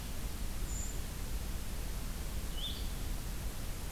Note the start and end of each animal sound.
0.6s-1.0s: Brown Creeper (Certhia americana)
2.4s-3.9s: Blue-headed Vireo (Vireo solitarius)

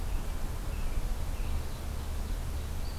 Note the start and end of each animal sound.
0.0s-1.6s: American Robin (Turdus migratorius)
1.3s-2.7s: Ovenbird (Seiurus aurocapilla)

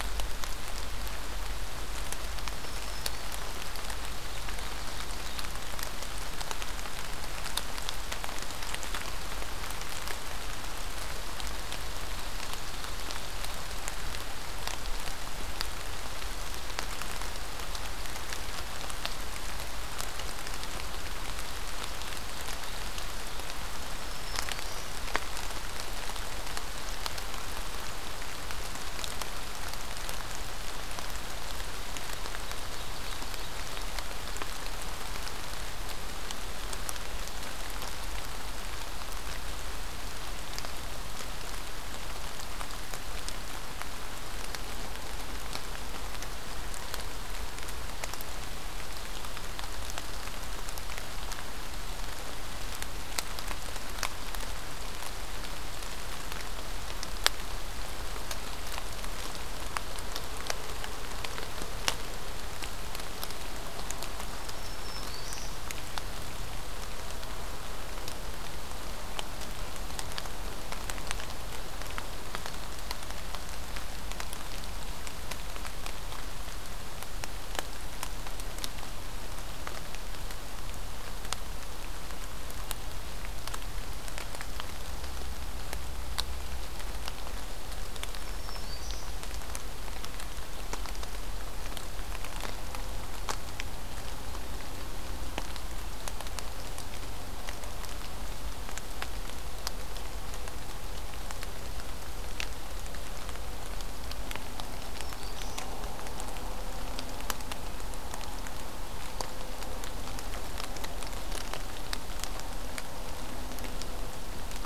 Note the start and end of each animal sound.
2.3s-3.5s: Black-throated Green Warbler (Setophaga virens)
23.9s-24.9s: Black-throated Green Warbler (Setophaga virens)
64.1s-65.6s: Black-throated Green Warbler (Setophaga virens)
87.9s-89.2s: Black-throated Green Warbler (Setophaga virens)
104.6s-105.8s: Black-throated Green Warbler (Setophaga virens)

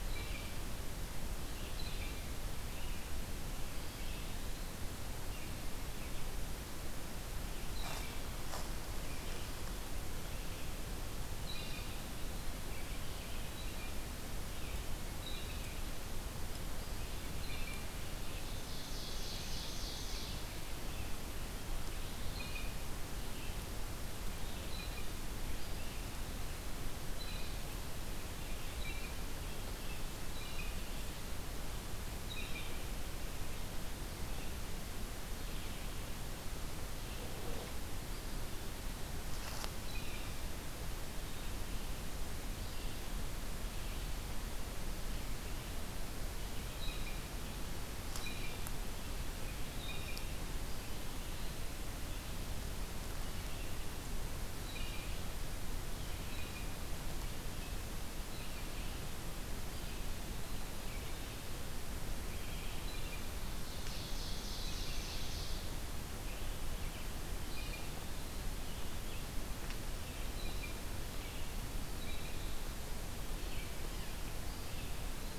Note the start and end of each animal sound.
0.0s-0.7s: Blue Jay (Cyanocitta cristata)
0.0s-43.2s: Red-eyed Vireo (Vireo olivaceus)
1.7s-2.4s: Blue Jay (Cyanocitta cristata)
7.7s-8.3s: Blue Jay (Cyanocitta cristata)
11.3s-12.2s: Blue Jay (Cyanocitta cristata)
13.3s-14.0s: Blue Jay (Cyanocitta cristata)
15.2s-15.8s: Blue Jay (Cyanocitta cristata)
17.4s-18.0s: Blue Jay (Cyanocitta cristata)
18.2s-20.5s: Ovenbird (Seiurus aurocapilla)
22.2s-22.8s: Blue Jay (Cyanocitta cristata)
24.5s-25.1s: Blue Jay (Cyanocitta cristata)
27.0s-27.8s: Blue Jay (Cyanocitta cristata)
28.6s-29.2s: Blue Jay (Cyanocitta cristata)
30.2s-30.9s: Blue Jay (Cyanocitta cristata)
32.2s-32.9s: Blue Jay (Cyanocitta cristata)
39.8s-40.5s: Blue Jay (Cyanocitta cristata)
43.6s-75.4s: Red-eyed Vireo (Vireo olivaceus)
46.7s-47.4s: Blue Jay (Cyanocitta cristata)
48.1s-48.7s: Blue Jay (Cyanocitta cristata)
49.7s-50.3s: Blue Jay (Cyanocitta cristata)
54.5s-55.3s: Blue Jay (Cyanocitta cristata)
62.8s-63.3s: Blue Jay (Cyanocitta cristata)
63.5s-66.1s: Ovenbird (Seiurus aurocapilla)
67.3s-67.9s: Blue Jay (Cyanocitta cristata)
70.2s-70.9s: Blue Jay (Cyanocitta cristata)

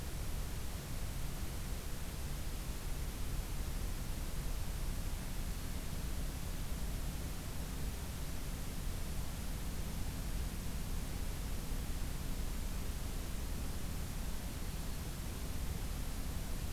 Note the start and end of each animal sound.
5.3s-5.9s: Black-throated Green Warbler (Setophaga virens)
14.4s-15.1s: Black-throated Green Warbler (Setophaga virens)

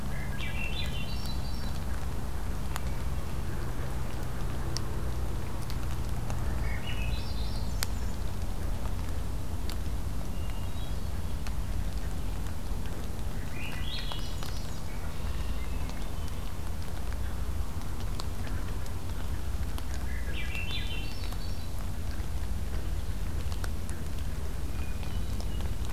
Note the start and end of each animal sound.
0.0s-1.8s: Swainson's Thrush (Catharus ustulatus)
6.3s-8.2s: Swainson's Thrush (Catharus ustulatus)
10.3s-11.4s: Hermit Thrush (Catharus guttatus)
13.1s-14.9s: Swainson's Thrush (Catharus ustulatus)
14.7s-15.7s: Red-winged Blackbird (Agelaius phoeniceus)
15.4s-16.4s: Hermit Thrush (Catharus guttatus)
19.8s-21.7s: Swainson's Thrush (Catharus ustulatus)
24.6s-25.8s: Hermit Thrush (Catharus guttatus)

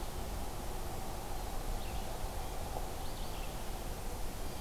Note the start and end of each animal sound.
0.0s-4.6s: Red-eyed Vireo (Vireo olivaceus)

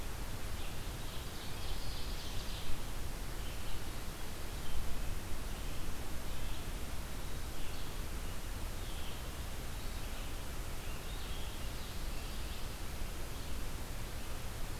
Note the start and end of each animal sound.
0.0s-14.8s: Red-eyed Vireo (Vireo olivaceus)
0.4s-2.9s: Ovenbird (Seiurus aurocapilla)

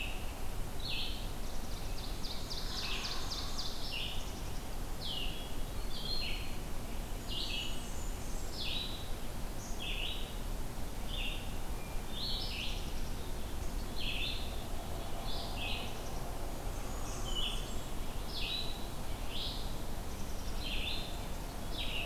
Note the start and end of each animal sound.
0.0s-22.1s: Red-eyed Vireo (Vireo olivaceus)
1.7s-4.2s: Ovenbird (Seiurus aurocapilla)
6.9s-8.9s: Blackburnian Warbler (Setophaga fusca)
9.5s-10.0s: Black-capped Chickadee (Poecile atricapillus)
16.5s-18.2s: Blackburnian Warbler (Setophaga fusca)

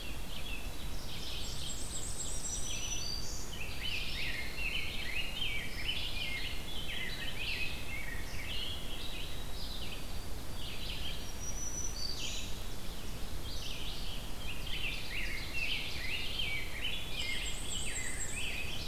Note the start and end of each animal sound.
0.0s-18.8s: Red-eyed Vireo (Vireo olivaceus)
0.8s-2.7s: Ovenbird (Seiurus aurocapilla)
1.4s-2.7s: Black-and-white Warbler (Mniotilta varia)
2.1s-3.5s: Black-throated Green Warbler (Setophaga virens)
3.4s-9.1s: Rose-breasted Grosbeak (Pheucticus ludovicianus)
4.3s-5.5s: Dark-eyed Junco (Junco hyemalis)
8.7s-12.0s: White-throated Sparrow (Zonotrichia albicollis)
11.0s-12.5s: Black-throated Green Warbler (Setophaga virens)
13.4s-18.9s: Rose-breasted Grosbeak (Pheucticus ludovicianus)
17.1s-18.5s: Black-and-white Warbler (Mniotilta varia)
18.1s-18.9s: Ovenbird (Seiurus aurocapilla)

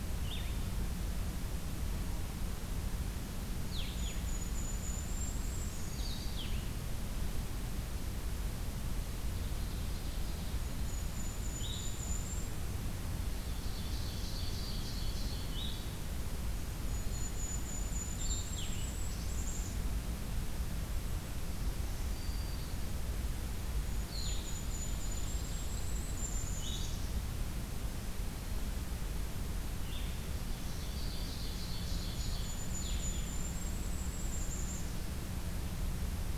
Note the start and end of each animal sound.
0.1s-0.8s: Blue-headed Vireo (Vireo solitarius)
3.5s-6.4s: Golden-crowned Kinglet (Regulus satrapa)
3.7s-6.8s: Blue-headed Vireo (Vireo solitarius)
9.1s-10.6s: Ovenbird (Seiurus aurocapilla)
10.4s-12.6s: Golden-crowned Kinglet (Regulus satrapa)
11.4s-12.2s: Blue-headed Vireo (Vireo solitarius)
13.3s-15.6s: Ovenbird (Seiurus aurocapilla)
15.5s-16.0s: Blue-headed Vireo (Vireo solitarius)
16.9s-19.9s: Golden-crowned Kinglet (Regulus satrapa)
18.1s-18.9s: Blue-headed Vireo (Vireo solitarius)
21.8s-22.7s: Black-throated Green Warbler (Setophaga virens)
23.7s-27.1s: Golden-crowned Kinglet (Regulus satrapa)
23.9s-24.7s: Blue-headed Vireo (Vireo solitarius)
26.4s-27.1s: Blue-headed Vireo (Vireo solitarius)
29.7s-30.5s: Blue-headed Vireo (Vireo solitarius)
30.5s-32.6s: Ovenbird (Seiurus aurocapilla)
32.3s-34.9s: Golden-crowned Kinglet (Regulus satrapa)
32.8s-33.3s: Blue-headed Vireo (Vireo solitarius)

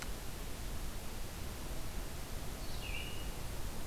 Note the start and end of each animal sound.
2.5s-3.3s: Red-eyed Vireo (Vireo olivaceus)

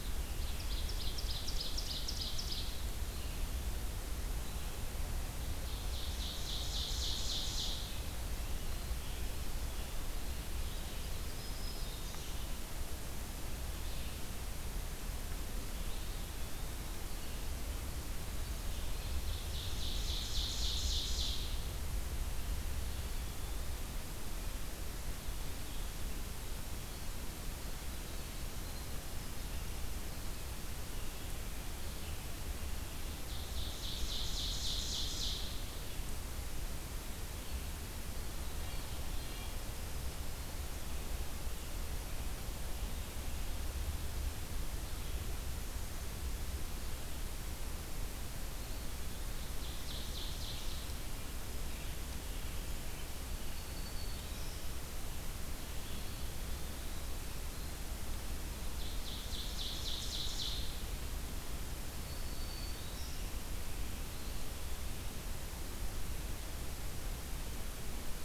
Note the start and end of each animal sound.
0.1s-2.7s: Ovenbird (Seiurus aurocapilla)
5.6s-7.9s: Ovenbird (Seiurus aurocapilla)
11.2s-12.2s: Black-throated Green Warbler (Setophaga virens)
15.7s-17.3s: Eastern Wood-Pewee (Contopus virens)
18.9s-21.7s: Ovenbird (Seiurus aurocapilla)
32.8s-35.6s: Ovenbird (Seiurus aurocapilla)
38.5s-39.6s: Red-breasted Nuthatch (Sitta canadensis)
48.9s-51.0s: Ovenbird (Seiurus aurocapilla)
53.1s-54.6s: Black-throated Green Warbler (Setophaga virens)
58.6s-60.7s: Ovenbird (Seiurus aurocapilla)
61.9s-63.4s: Black-throated Green Warbler (Setophaga virens)

